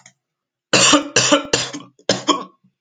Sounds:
Cough